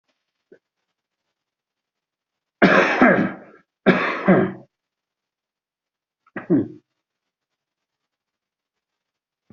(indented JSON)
{
  "expert_labels": [
    {
      "quality": "ok",
      "cough_type": "dry",
      "dyspnea": false,
      "wheezing": false,
      "stridor": false,
      "choking": false,
      "congestion": false,
      "nothing": true,
      "diagnosis": "healthy cough",
      "severity": "pseudocough/healthy cough"
    }
  ],
  "age": 63,
  "gender": "male",
  "respiratory_condition": true,
  "fever_muscle_pain": false,
  "status": "COVID-19"
}